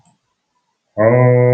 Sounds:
Sniff